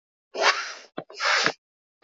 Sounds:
Sniff